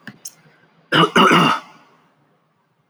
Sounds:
Throat clearing